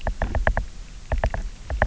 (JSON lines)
{"label": "biophony, knock", "recorder": "SoundTrap 300"}